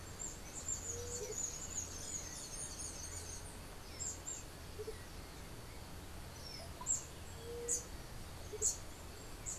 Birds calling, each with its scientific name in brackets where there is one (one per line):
White-tipped Dove (Leptotila verreauxi)
Andean Motmot (Momotus aequatorialis)
unidentified bird
Russet-backed Oropendola (Psarocolius angustifrons)